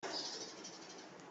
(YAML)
expert_labels:
- quality: no cough present
  cough_type: unknown
  dyspnea: false
  wheezing: false
  stridor: false
  choking: false
  congestion: false
  nothing: true
  diagnosis: healthy cough
  severity: unknown